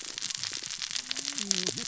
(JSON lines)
{"label": "biophony, cascading saw", "recorder": "SoundTrap 600 or HydroMoth"}